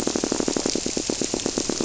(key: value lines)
label: biophony
recorder: SoundTrap 300